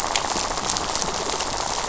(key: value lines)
label: biophony, rattle
recorder: SoundTrap 500